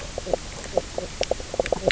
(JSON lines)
{"label": "biophony, knock croak", "recorder": "SoundTrap 300"}